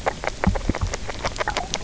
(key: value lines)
label: biophony, grazing
recorder: SoundTrap 300